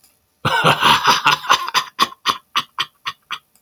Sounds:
Laughter